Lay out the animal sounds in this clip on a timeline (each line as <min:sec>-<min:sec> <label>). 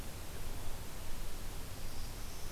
0:01.7-0:02.5 Black-throated Green Warbler (Setophaga virens)